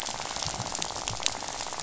{"label": "biophony, rattle", "recorder": "SoundTrap 500"}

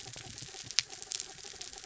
{"label": "anthrophony, mechanical", "recorder": "SoundTrap 300"}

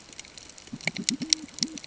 {"label": "ambient", "recorder": "HydroMoth"}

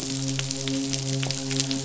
{"label": "biophony, midshipman", "recorder": "SoundTrap 500"}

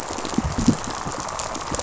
{"label": "biophony, rattle response", "recorder": "SoundTrap 500"}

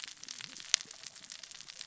{"label": "biophony, cascading saw", "recorder": "SoundTrap 600 or HydroMoth"}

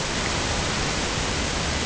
{"label": "ambient", "recorder": "HydroMoth"}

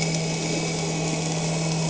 {"label": "anthrophony, boat engine", "recorder": "HydroMoth"}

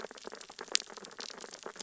{"label": "biophony, sea urchins (Echinidae)", "recorder": "SoundTrap 600 or HydroMoth"}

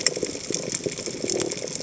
{"label": "biophony", "recorder": "HydroMoth"}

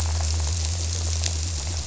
{"label": "biophony", "recorder": "SoundTrap 300"}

